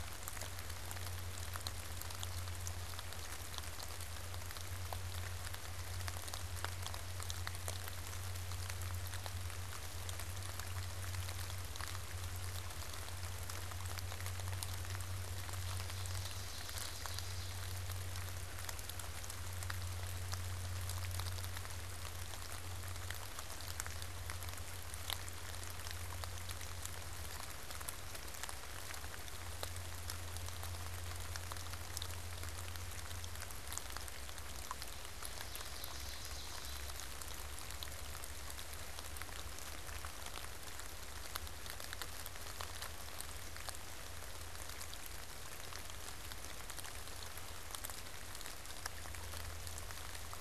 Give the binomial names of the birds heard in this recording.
Seiurus aurocapilla